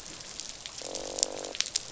{"label": "biophony, croak", "recorder": "SoundTrap 500"}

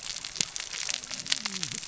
{"label": "biophony, cascading saw", "recorder": "SoundTrap 600 or HydroMoth"}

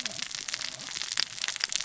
{"label": "biophony, cascading saw", "recorder": "SoundTrap 600 or HydroMoth"}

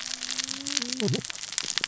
{"label": "biophony, cascading saw", "recorder": "SoundTrap 600 or HydroMoth"}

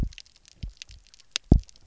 {"label": "biophony, double pulse", "recorder": "SoundTrap 300"}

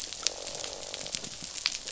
{"label": "biophony, croak", "recorder": "SoundTrap 500"}
{"label": "biophony", "recorder": "SoundTrap 500"}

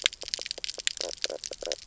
{"label": "biophony, knock croak", "recorder": "SoundTrap 300"}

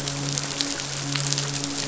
{"label": "biophony, midshipman", "recorder": "SoundTrap 500"}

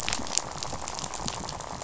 {"label": "biophony, rattle", "recorder": "SoundTrap 500"}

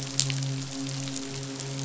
{"label": "biophony, midshipman", "recorder": "SoundTrap 500"}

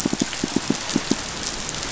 {"label": "biophony, pulse", "recorder": "SoundTrap 500"}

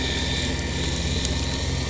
{"label": "anthrophony, boat engine", "recorder": "SoundTrap 300"}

